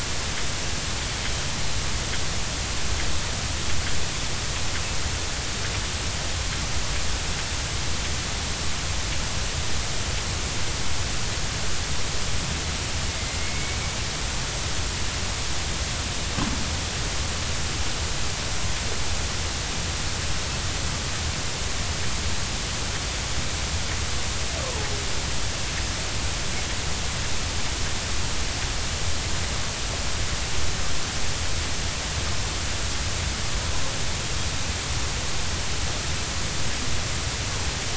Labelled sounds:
13.4	13.8	killer whale, Bigg's (transient), 2.1 to 2.3 kHz
24.6	24.9	killer whale, Bigg's (transient), 0.80 to 1.2 kHz

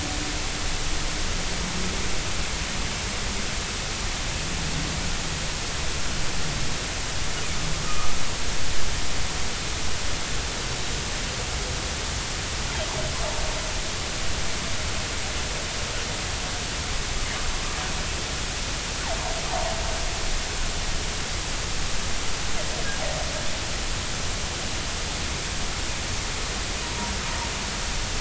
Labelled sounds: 7.8	8.1	humpback whale, 1.1 to 1.3 kHz
26.8	27.1	humpback whale, 0.90 to 0.99 kHz

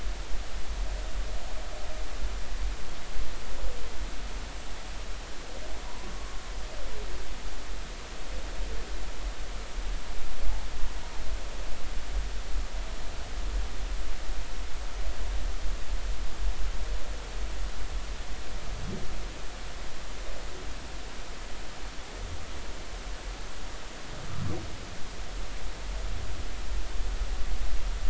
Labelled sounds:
6.1	6.4	humpback whale, 1.0 to 1.2 kHz

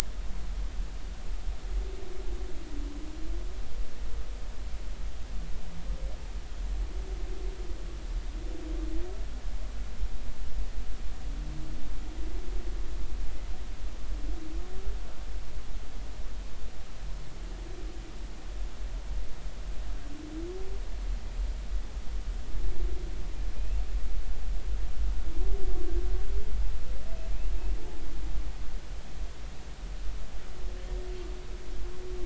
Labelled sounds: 23.6	23.8	humpback whale, 2.4 to 2.8 kHz

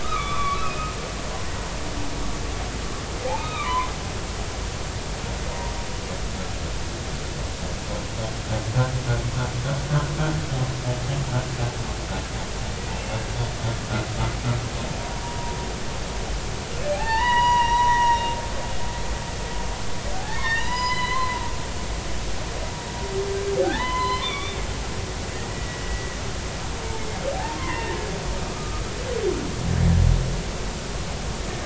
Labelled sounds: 0.0	0.9	humpback whale, 1.0 to 3.5 kHz
3.3	3.9	humpback whale, 0.93 to 3.8 kHz
12.9	13.2	humpback whale, 2.6 to 2.8 kHz
15.2	15.6	humpback whale, 0.86 to 1.0 kHz
16.9	18.4	humpback whale, 0.80 to 5.9 kHz
20.2	21.4	humpback whale, 0.86 to 5.1 kHz
23.6	24.6	humpback whale, 0.80 to 5.1 kHz
25.5	26.1	humpback whale, 1.9 to 2.0 kHz
27.0	27.2	humpback whale, 2.1 to 2.2 kHz
27.6	28.8	humpback whale, 0.86 to 2.2 kHz

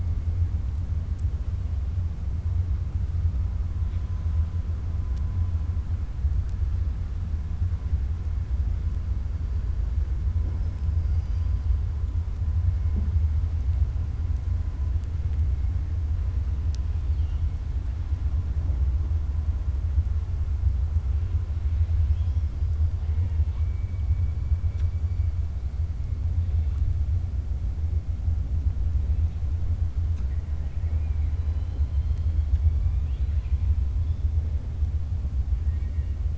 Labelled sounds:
16.9	17.5	killer whale, 2.8 to 4.7 kHz
35.6	36.2	killer whale, 1.7 to 2.9 kHz

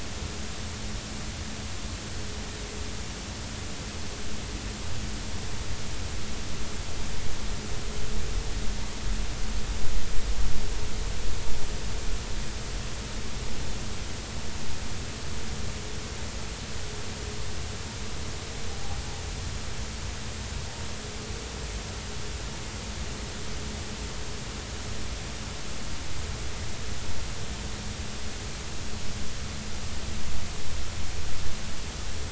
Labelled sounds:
18.7	19.0	humpback whale, 0.80 to 0.86 kHz

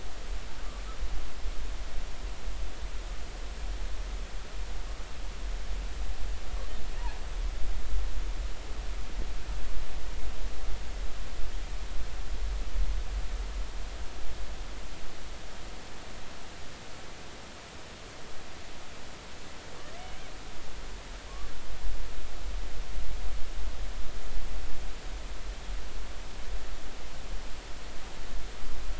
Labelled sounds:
20.0	20.3	killer whale, 2.2 to 2.4 kHz

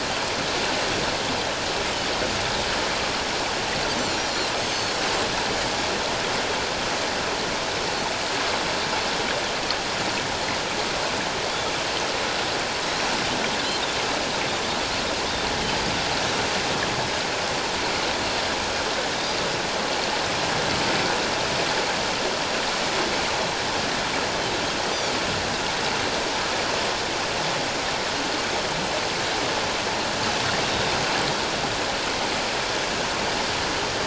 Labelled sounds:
4.6	4.9	Pacific white-sided dolphin, 6.2 to 6.5 kHz

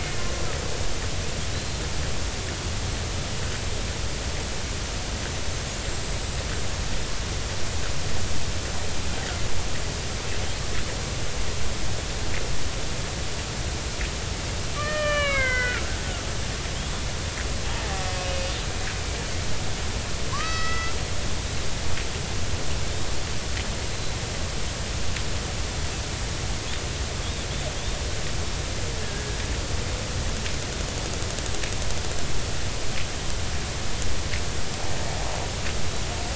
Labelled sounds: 1.5	1.8	killer whale, Bigg's (transient), 3.8 to 4.3 kHz
5.8	6.2	killer whale, Bigg's (transient), 7.4 to 7.8 kHz
14.8	15.9	killer whale, Bigg's (transient), 0.96 to 5.6 kHz
17.6	18.5	killer whale, Bigg's (transient), 0.80 to 2.6 kHz
20.3	20.9	killer whale, Bigg's (transient), 0.93 to 5.3 kHz
23.9	24.2	killer whale, Bigg's (transient), 3.9 to 4.1 kHz
29.0	29.3	killer whale, Bigg's (transient), 1.6 to 1.8 kHz

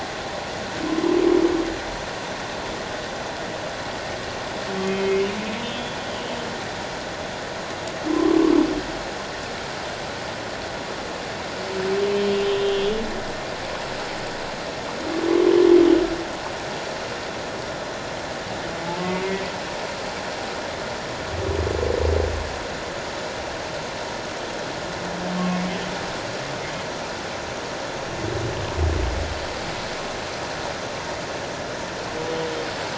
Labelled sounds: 4.8	6.0	humpback whale, 2.1 to 3.4 kHz
8.1	8.4	humpback whale, 0.97 to 1.2 kHz
12.4	13.0	humpback whale, 2.7 to 3.7 kHz
25.4	25.7	humpback whale, 2.1 to 2.3 kHz

